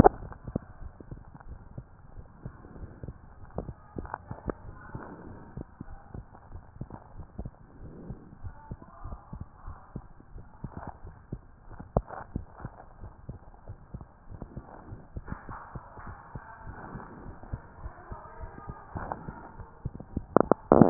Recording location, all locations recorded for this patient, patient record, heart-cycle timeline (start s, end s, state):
tricuspid valve (TV)
aortic valve (AV)+pulmonary valve (PV)+tricuspid valve (TV)+mitral valve (MV)
#Age: Child
#Sex: Female
#Height: 133.0 cm
#Weight: 47.7 kg
#Pregnancy status: False
#Murmur: Absent
#Murmur locations: nan
#Most audible location: nan
#Systolic murmur timing: nan
#Systolic murmur shape: nan
#Systolic murmur grading: nan
#Systolic murmur pitch: nan
#Systolic murmur quality: nan
#Diastolic murmur timing: nan
#Diastolic murmur shape: nan
#Diastolic murmur grading: nan
#Diastolic murmur pitch: nan
#Diastolic murmur quality: nan
#Outcome: Normal
#Campaign: 2015 screening campaign
0.00	0.60	unannotated
0.60	0.62	S2
0.62	0.80	diastole
0.80	0.92	S1
0.92	1.10	systole
1.10	1.20	S2
1.20	1.46	diastole
1.46	1.58	S1
1.58	1.76	systole
1.76	1.88	S2
1.88	2.14	diastole
2.14	2.26	S1
2.26	2.44	systole
2.44	2.54	S2
2.54	2.76	diastole
2.76	2.90	S1
2.90	3.02	systole
3.02	3.16	S2
3.16	3.38	diastole
3.38	3.48	S1
3.48	3.66	systole
3.66	3.76	S2
3.76	3.96	diastole
3.96	4.08	S1
4.08	4.27	systole
4.27	4.40	S2
4.40	4.62	diastole
4.62	4.76	S1
4.76	4.93	systole
4.93	5.06	S2
5.06	5.28	diastole
5.28	5.40	S1
5.40	5.56	systole
5.56	5.66	S2
5.66	5.88	diastole
5.88	5.98	S1
5.98	6.14	systole
6.14	6.26	S2
6.26	6.50	diastole
6.50	6.62	S1
6.62	6.80	systole
6.80	6.90	S2
6.90	7.14	diastole
7.14	7.26	S1
7.26	7.38	systole
7.38	7.52	S2
7.52	7.78	diastole
7.78	7.92	S1
7.92	8.08	systole
8.08	8.18	S2
8.18	8.40	diastole
8.40	8.52	S1
8.52	8.68	systole
8.68	8.78	S2
8.78	9.01	diastole
9.01	9.18	S1
9.18	9.31	systole
9.31	9.46	S2
9.46	9.64	diastole
9.64	9.78	S1
9.78	9.92	systole
9.92	10.10	S2
10.10	10.31	diastole
10.31	10.46	S1
10.46	20.90	unannotated